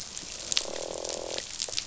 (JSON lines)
{"label": "biophony, croak", "recorder": "SoundTrap 500"}